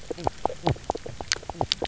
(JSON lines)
{"label": "biophony, knock croak", "recorder": "SoundTrap 300"}